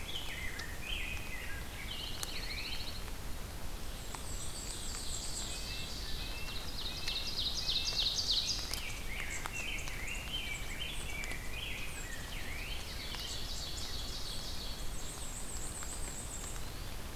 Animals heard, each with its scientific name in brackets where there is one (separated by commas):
Ovenbird (Seiurus aurocapilla), Dark-eyed Junco (Junco hyemalis), Black-and-white Warbler (Mniotilta varia), Rose-breasted Grosbeak (Pheucticus ludovicianus), Eastern Wood-Pewee (Contopus virens), Red-breasted Nuthatch (Sitta canadensis)